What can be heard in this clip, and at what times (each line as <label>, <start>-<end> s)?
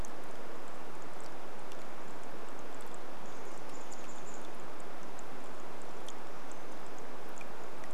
rain, 0-8 s
Chestnut-backed Chickadee call, 2-6 s